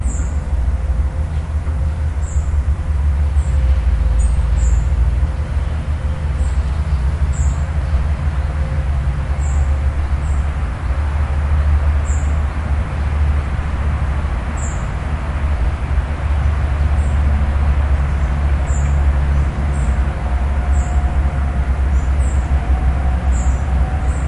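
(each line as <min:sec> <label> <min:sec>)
0:00.0 A bird chirps with a high pitch. 0:00.5
0:00.0 A constant deep humming sound. 0:24.3
0:02.3 A bird chirps with a high pitch. 0:02.5
0:06.3 A bird chirps with a high pitch. 0:07.9
0:09.2 A bird chirps with a high pitch. 0:12.3
0:14.5 A bird chirps with a high pitch. 0:14.9
0:16.7 Multiple birds chirp with high-pitched sounds. 0:24.3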